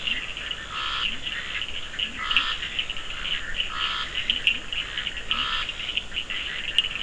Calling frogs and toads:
Leptodactylus latrans (Leptodactylidae), Boana bischoffi (Hylidae), Scinax perereca (Hylidae), Sphaenorhynchus surdus (Hylidae)
9pm

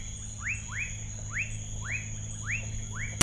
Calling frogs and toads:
Leptodactylus fuscus (Leptodactylidae)
7pm

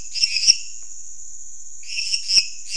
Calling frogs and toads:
Dendropsophus minutus (Hylidae)
11pm

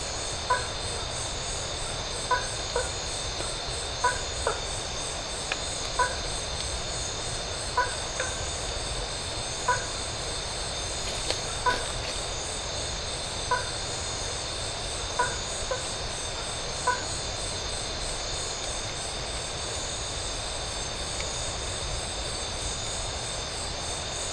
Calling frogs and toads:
Boana faber (Hylidae)
9:30pm

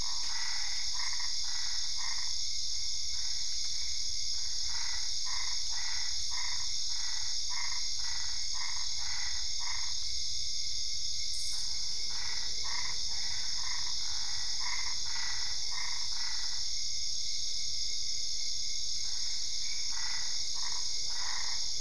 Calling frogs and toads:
Boana albopunctata (Hylidae)
11:30pm

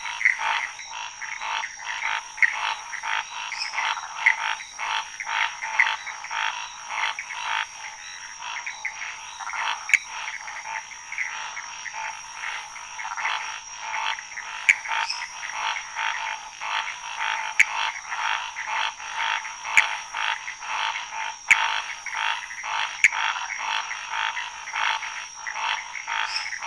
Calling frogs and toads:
Scinax fuscovarius (Hylidae), Pithecopus azureus (Hylidae), Dendropsophus minutus (Hylidae)
~3am

